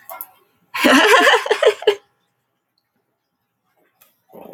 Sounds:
Laughter